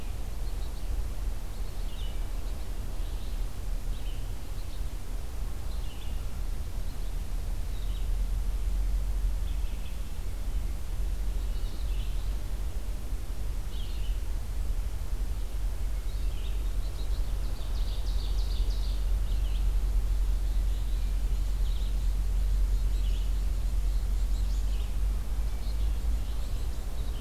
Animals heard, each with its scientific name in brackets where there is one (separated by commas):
Red-eyed Vireo (Vireo olivaceus), Ovenbird (Seiurus aurocapilla), Black-capped Chickadee (Poecile atricapillus)